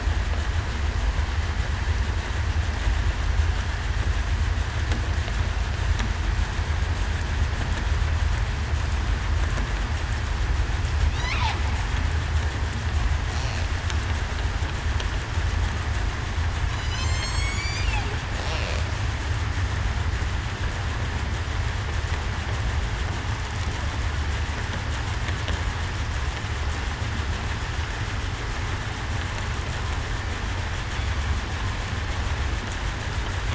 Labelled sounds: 16.7	17.9	killer whale, southern resident, 2.1 to 8.0 kHz

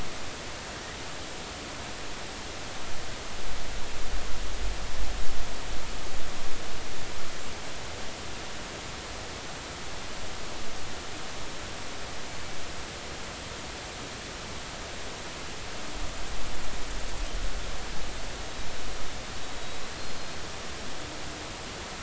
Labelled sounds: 19.9	20.2	killer whale, Bigg's (transient), 4.0 to 4.3 kHz

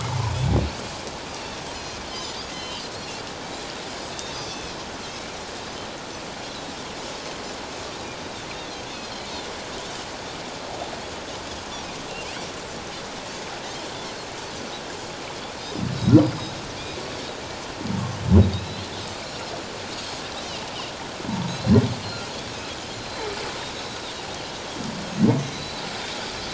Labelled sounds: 0.1	0.3	humpback whale, 0.81 to 1.1 kHz
1.7	2.9	Pacific white-sided dolphin, 2.5 to 6.2 kHz
4.1	4.8	Pacific white-sided dolphin, 2.4 to 6.2 kHz
8.9	9.2	Pacific white-sided dolphin, 5.6 to 6.0 kHz
17.0	17.3	Pacific white-sided dolphin, 5.4 to 5.7 kHz
18.4	18.9	Pacific white-sided dolphin, 3.7 to 4.3 kHz
21.5	22.3	Pacific white-sided dolphin, 3.8 to 4.3 kHz
22.9	24.1	Pacific white-sided dolphin, 3.4 to 4.3 kHz
25.5	25.8	Pacific white-sided dolphin, 3.9 to 4.1 kHz

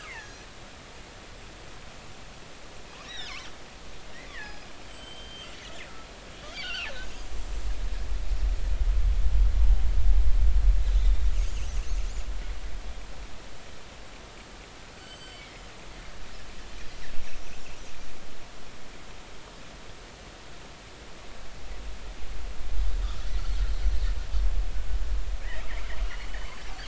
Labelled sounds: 0.0	0.5	killer whale, northern resident, G clan, 0.80 to 6.0 kHz
3.0	3.5	killer whale, northern resident, G clan, 1.4 to 5.9 kHz
4.3	5.5	killer whale, northern resident, G clan, 1.6 to 7.9 kHz
6.5	6.9	killer whale, northern resident, G clan, 2.3 to 4.8 kHz
9.6	9.8	killer whale, northern resident, G clan, 0.80 to 1.1 kHz
15.0	15.7	killer whale, northern resident, G clan, GG subclan, call N23ii, 2.0 to 7.7 kHz

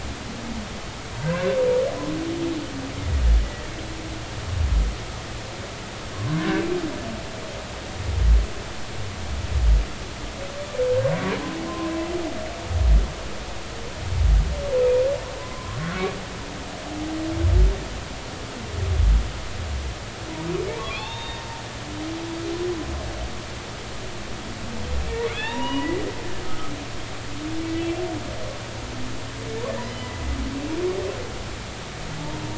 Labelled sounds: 6.1	6.4	humpback whale, 0.99 to 1.1 kHz
10.8	11.1	humpback whale, 1.5 to 1.7 kHz
14.8	15.8	humpback whale, 0.96 to 2.6 kHz
20.8	21.4	humpback whale, 0.80 to 3.7 kHz
25.3	26.0	humpback whale, 0.83 to 3.8 kHz
26.5	26.7	humpback whale, 1.2 to 1.3 kHz
27.8	28.0	humpback whale, 2.6 to 2.8 kHz
29.8	30.2	humpback whale, 1.9 to 2.0 kHz

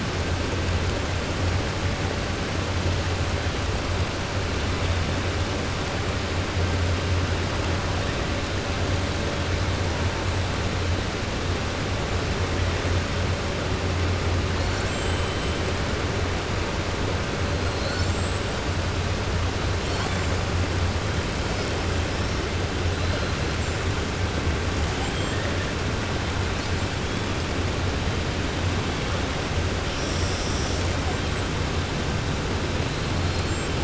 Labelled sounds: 14.5	15.5	killer whale, 4.1 to 8.0 kHz
17.6	18.4	killer whale, 4.0 to 7.9 kHz

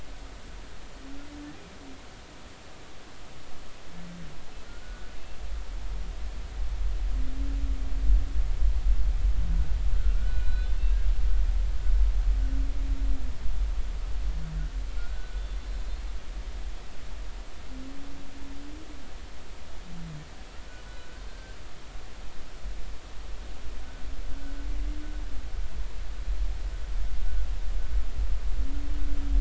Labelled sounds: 4.7	5.1	humpback whale, 1.4 to 1.5 kHz
10.2	10.8	humpback whale, 1.4 to 4.2 kHz
14.9	15.4	humpback whale, 1.3 to 1.5 kHz
20.9	21.6	humpback whale, 1.4 to 1.7 kHz

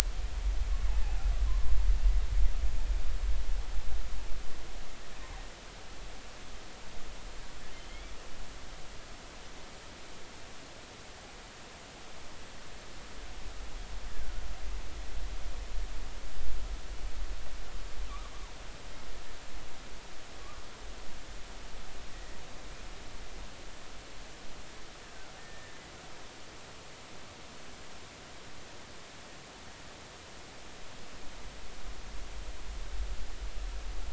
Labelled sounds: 7.7	8.1	killer whale, offshore, 2.0 to 3.5 kHz
14.1	14.4	killer whale, offshore, 1.3 to 1.8 kHz
25.4	25.7	killer whale, offshore, 1.7 to 1.9 kHz

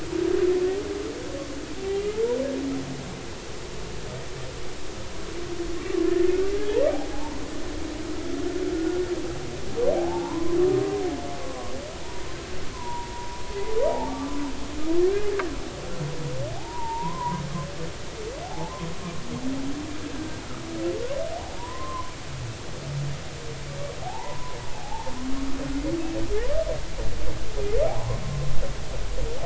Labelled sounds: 7.1	7.4	humpback whale, 0.80 to 1.1 kHz
8.7	9.0	humpback whale, 1.4 to 1.5 kHz
10.0	10.6	humpback whale, 0.80 to 1.1 kHz
11.4	11.7	humpback whale, 0.99 to 1.2 kHz
12.0	13.4	humpback whale, 0.90 to 1.1 kHz
14.1	14.3	humpback whale, 1.1 to 1.2 kHz
16.6	17.4	humpback whale, 0.80 to 1.1 kHz
18.4	18.7	humpback whale, 0.80 to 0.93 kHz
20.1	20.4	humpback whale, 1.5 to 1.7 kHz
21.6	22.1	humpback whale, 0.90 to 1.2 kHz
24.0	25.1	humpback whale, 0.80 to 1.1 kHz
27.9	28.2	humpback whale, 0.80 to 1.1 kHz

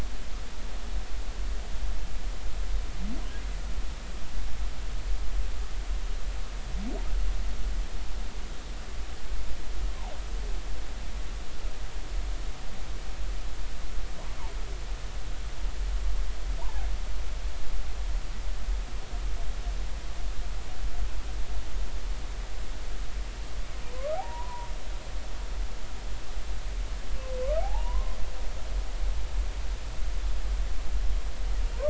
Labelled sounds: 16.6	16.9	humpback whale, 0.80 to 1.1 kHz
23.8	24.7	humpback whale, 0.80 to 1.2 kHz
27.6	28.2	humpback whale, 0.80 to 1.1 kHz

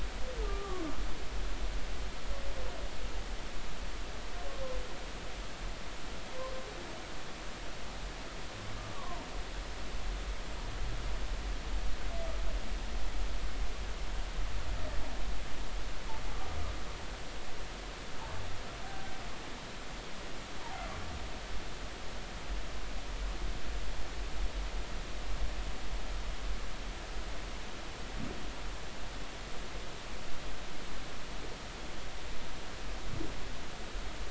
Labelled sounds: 0.4	0.9	humpback whale, 1.0 to 1.3 kHz
8.9	9.3	humpback whale, 0.86 to 1.2 kHz
20.6	20.9	humpback whale, 0.80 to 0.99 kHz

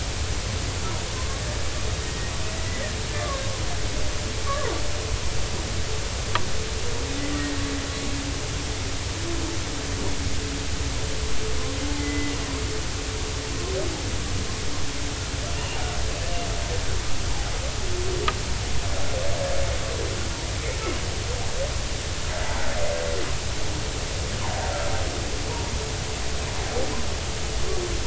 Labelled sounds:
1.2	1.4	humpback whale, 0.99 to 1.1 kHz
2.0	3.4	humpback whale, 1.0 to 2.0 kHz
4.5	4.7	humpback whale, 0.90 to 1.2 kHz
12.0	12.3	humpback whale, 2.0 to 2.1 kHz
15.5	15.8	humpback whale, 2.7 to 3.0 kHz

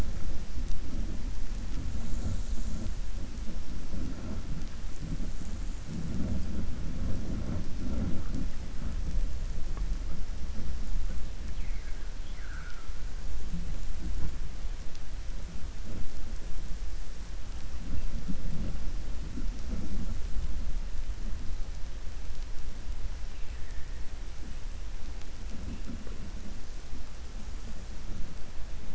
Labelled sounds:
12.1	12.9	vessel noise, 1.3 to 3.4 kHz

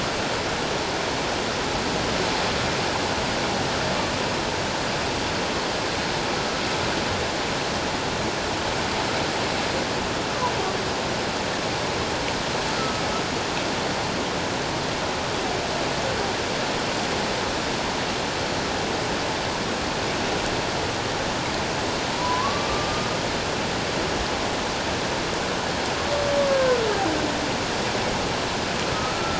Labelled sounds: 12.8	13.0	humpback whale, 1.2 to 1.4 kHz
22.1	23.1	humpback whale, 0.88 to 1.2 kHz
26.5	26.8	humpback whale, 1.4 to 1.7 kHz
28.9	29.3	humpback whale, 1.2 to 1.4 kHz

